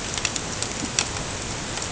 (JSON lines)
{"label": "ambient", "recorder": "HydroMoth"}